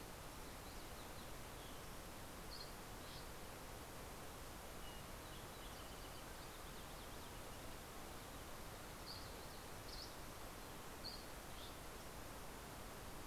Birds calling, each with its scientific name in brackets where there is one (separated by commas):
Dusky Flycatcher (Empidonax oberholseri)